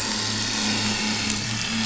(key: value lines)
label: anthrophony, boat engine
recorder: SoundTrap 500